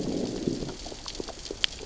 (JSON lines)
{"label": "biophony, growl", "recorder": "SoundTrap 600 or HydroMoth"}